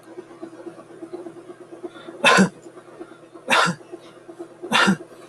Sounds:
Cough